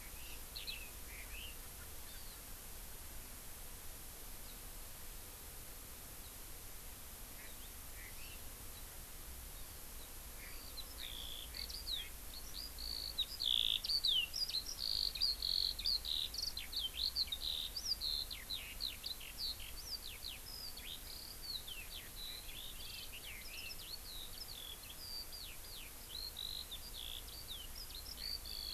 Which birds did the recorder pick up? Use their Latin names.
Leiothrix lutea, Alauda arvensis, Chlorodrepanis virens, Haemorhous mexicanus